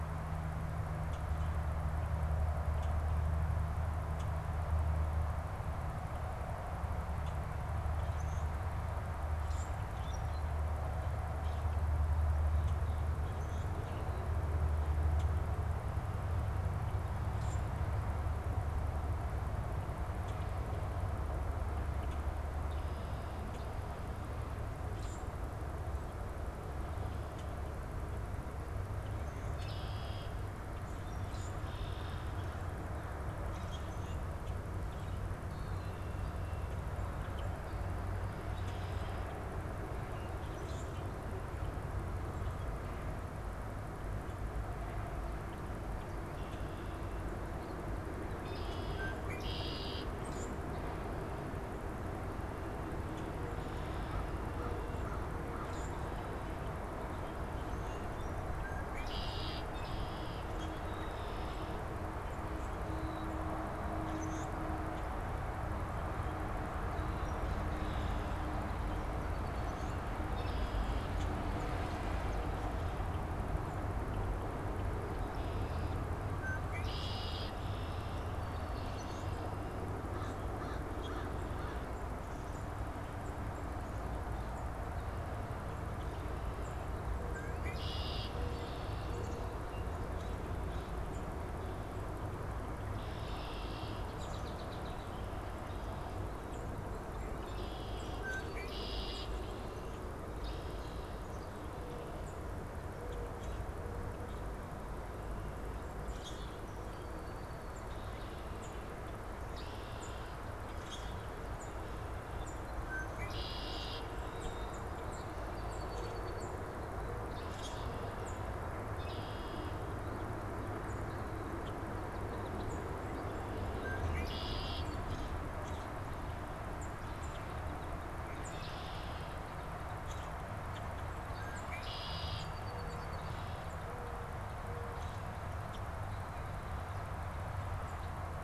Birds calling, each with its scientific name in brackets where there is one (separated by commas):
Black-capped Chickadee (Poecile atricapillus), unidentified bird, Red-winged Blackbird (Agelaius phoeniceus), Mourning Dove (Zenaida macroura), American Crow (Corvus brachyrhynchos), Tufted Titmouse (Baeolophus bicolor), Common Grackle (Quiscalus quiscula), Song Sparrow (Melospiza melodia)